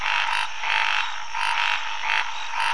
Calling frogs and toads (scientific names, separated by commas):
Scinax fuscovarius